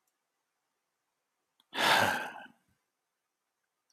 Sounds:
Sigh